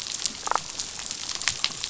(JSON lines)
{"label": "biophony, damselfish", "recorder": "SoundTrap 500"}